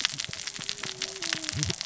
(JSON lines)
{"label": "biophony, cascading saw", "recorder": "SoundTrap 600 or HydroMoth"}